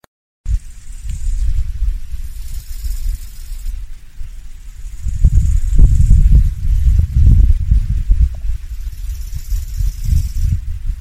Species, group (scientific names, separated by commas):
Chorthippus biguttulus, Orthoptera